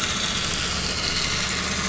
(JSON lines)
{"label": "anthrophony, boat engine", "recorder": "SoundTrap 500"}